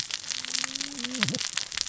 {"label": "biophony, cascading saw", "recorder": "SoundTrap 600 or HydroMoth"}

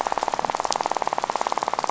{"label": "biophony, rattle", "recorder": "SoundTrap 500"}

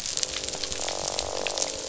{"label": "biophony, croak", "recorder": "SoundTrap 500"}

